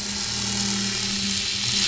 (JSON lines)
{"label": "anthrophony, boat engine", "recorder": "SoundTrap 500"}